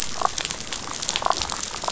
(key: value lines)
label: biophony, damselfish
recorder: SoundTrap 500